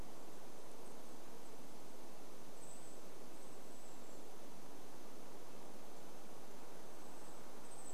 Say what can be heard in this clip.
unidentified sound, Golden-crowned Kinglet call